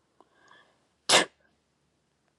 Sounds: Sneeze